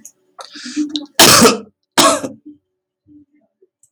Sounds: Cough